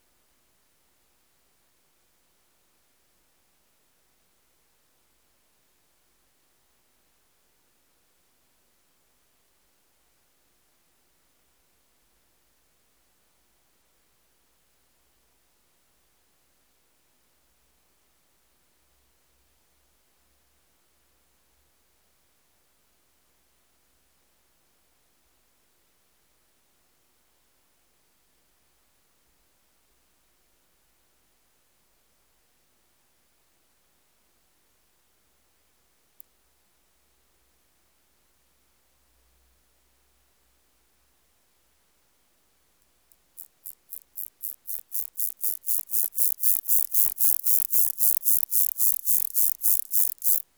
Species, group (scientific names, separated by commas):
Omocestus petraeus, Orthoptera